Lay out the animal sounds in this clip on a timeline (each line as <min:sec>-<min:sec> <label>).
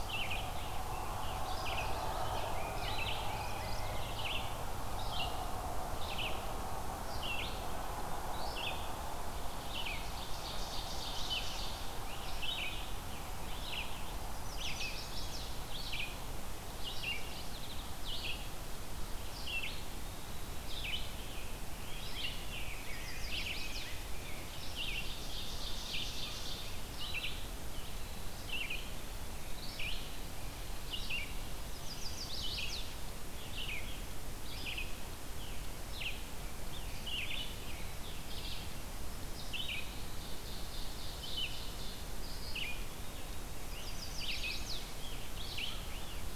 0:00.0-0:01.7 Scarlet Tanager (Piranga olivacea)
0:00.0-0:44.7 Red-eyed Vireo (Vireo olivaceus)
0:01.4-0:02.5 Chestnut-sided Warbler (Setophaga pensylvanica)
0:02.0-0:04.1 Rose-breasted Grosbeak (Pheucticus ludovicianus)
0:03.2-0:04.1 Mourning Warbler (Geothlypis philadelphia)
0:09.5-0:12.0 Ovenbird (Seiurus aurocapilla)
0:12.9-0:14.3 Scarlet Tanager (Piranga olivacea)
0:14.2-0:15.5 Chestnut-sided Warbler (Setophaga pensylvanica)
0:16.8-0:17.9 Mourning Warbler (Geothlypis philadelphia)
0:19.2-0:20.8 Eastern Wood-Pewee (Contopus virens)
0:20.8-0:22.6 Scarlet Tanager (Piranga olivacea)
0:21.9-0:24.8 Rose-breasted Grosbeak (Pheucticus ludovicianus)
0:22.7-0:24.1 Chestnut-sided Warbler (Setophaga pensylvanica)
0:24.4-0:26.9 Ovenbird (Seiurus aurocapilla)
0:26.1-0:27.2 American Crow (Corvus brachyrhynchos)
0:31.6-0:33.0 Chestnut-sided Warbler (Setophaga pensylvanica)
0:36.5-0:38.4 Scarlet Tanager (Piranga olivacea)
0:39.8-0:42.2 Ovenbird (Seiurus aurocapilla)
0:42.5-0:43.6 Eastern Wood-Pewee (Contopus virens)
0:43.6-0:45.1 Chestnut-sided Warbler (Setophaga pensylvanica)
0:44.3-0:46.3 Scarlet Tanager (Piranga olivacea)
0:45.3-0:46.4 Red-eyed Vireo (Vireo olivaceus)
0:45.4-0:46.4 American Crow (Corvus brachyrhynchos)